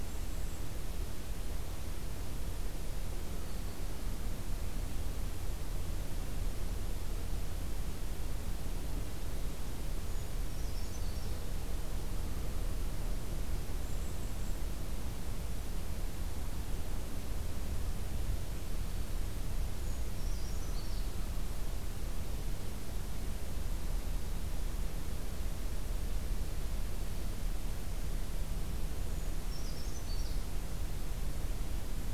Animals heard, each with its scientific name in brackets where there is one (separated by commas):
Brown Creeper (Certhia americana)